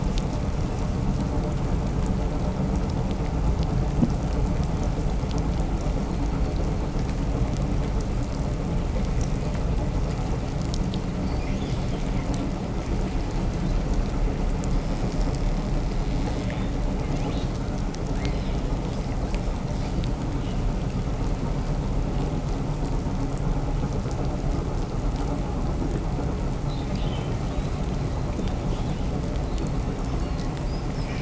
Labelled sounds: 11.0	12.3	killer whale, 1.5 to 8.0 kHz
14.6	17.6	killer whale, 1.3 to 7.7 kHz
17.9	20.0	killer whale, 1.0 to 6.1 kHz
26.2	31.1	killer whale, 1.3 to 7.0 kHz

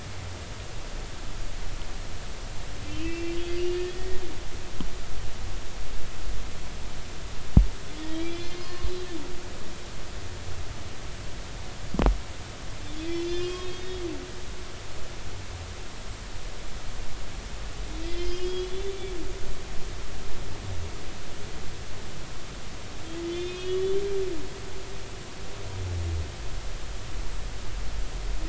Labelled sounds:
2.9	3.4	humpback whale, 2.2 to 2.8 kHz
3.9	4.2	humpback whale, 1.8 to 1.9 kHz
8.0	9.1	humpback whale, 0.99 to 5.2 kHz
13.1	14.0	humpback whale, 2.3 to 5.9 kHz
18.0	18.9	humpback whale, 1.9 to 5.4 kHz
23.2	24.0	humpback whale, 2.4 to 3.7 kHz

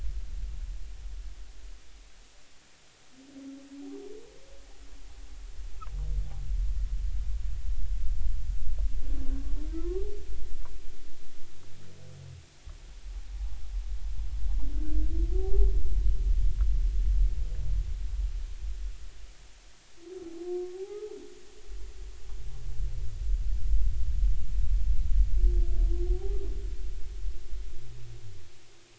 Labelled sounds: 9.8	10.0	humpback whale, 0.96 to 1.2 kHz
15.3	15.7	humpback whale, 0.80 to 0.86 kHz
20.7	21.2	humpback whale, 0.80 to 1.3 kHz

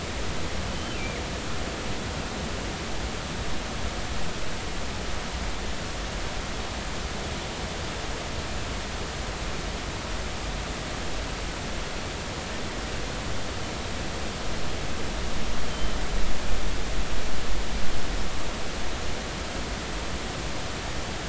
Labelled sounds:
0.7	1.0	killer whale, northern resident, G clan, GG subclan, call N23ii, 2.9 to 3.1 kHz
1.0	1.2	killer whale, 2.1 to 2.5 kHz

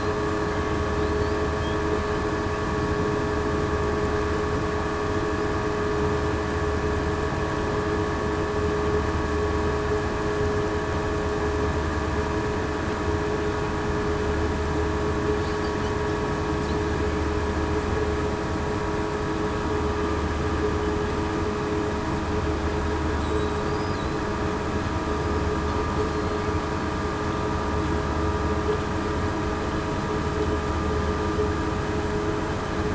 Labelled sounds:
23.2	23.5	killer whale, southern resident, 3.8 to 3.9 kHz

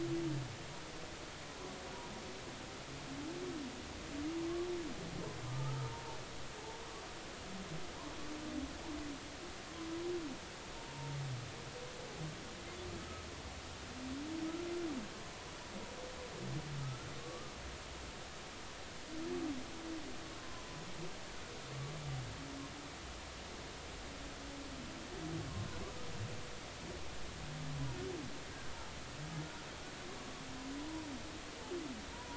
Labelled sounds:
5.5	6.2	humpback whale, 0.83 to 1.3 kHz
10.7	11.1	humpback whale, 0.90 to 0.96 kHz
16.8	17.5	humpback whale, 1.1 to 1.4 kHz
21.4	21.6	humpback whale, 0.96 to 1.1 kHz

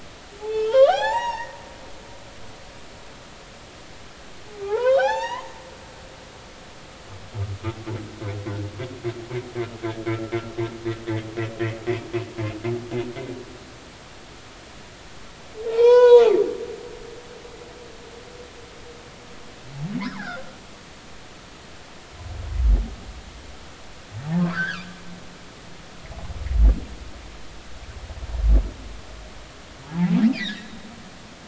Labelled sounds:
0.4	1.6	humpback whale, 0.80 to 7.7 kHz
4.5	5.5	humpback whale, 0.80 to 6.0 kHz
15.7	16.2	humpback whale, 0.80 to 6.5 kHz
20.0	20.4	humpback whale, 0.80 to 1.9 kHz
24.5	24.8	humpback whale, 1.1 to 1.9 kHz
29.8	30.7	humpback whale, 0.80 to 2.7 kHz

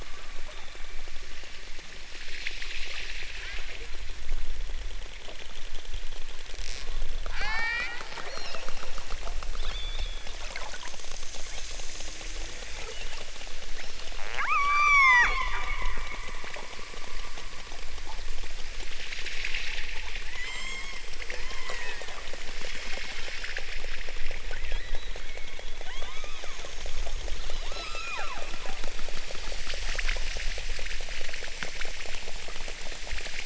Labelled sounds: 3.3	3.8	killer whale, southern Alaska resident, 0.37 to 2.0 kHz
7.3	7.9	killer whale, southern Alaska resident, 0.60 to 8.0 kHz
8.3	8.7	killer whale, southern Alaska resident, 2.1 to 6.1 kHz
9.6	10.4	killer whale, southern Alaska resident, 1.9 to 5.7 kHz
11.4	11.9	killer whale, southern Alaska resident, 2.4 to 5.2 kHz
12.9	13.4	killer whale, southern Alaska resident, 2.3 to 4.5 kHz
13.7	14.1	killer whale, southern Alaska resident, 1.4 to 5.9 kHz
14.4	15.8	killer whale, southern Alaska resident, 0.46 to 8.0 kHz
20.3	22.2	killer whale, southern Alaska resident, 0.41 to 8.0 kHz
22.9	23.5	killer whale, southern Alaska resident, 2.9 to 5.0 kHz
25.2	26.9	killer whale, southern Alaska resident, 0.32 to 8.0 kHz
27.6	28.6	killer whale, southern Alaska resident, 0.41 to 7.8 kHz

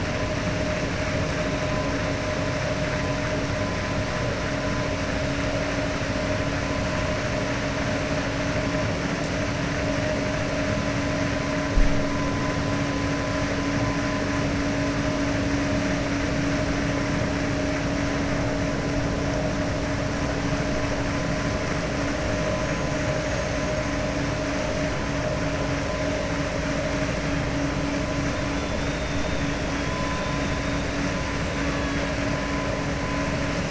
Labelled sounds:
29.7	30.1	killer whale, 2.9 to 4.1 kHz

